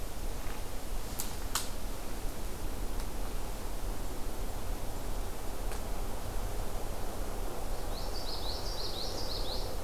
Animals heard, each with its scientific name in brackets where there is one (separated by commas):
Common Yellowthroat (Geothlypis trichas)